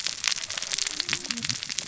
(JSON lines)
{"label": "biophony, cascading saw", "recorder": "SoundTrap 600 or HydroMoth"}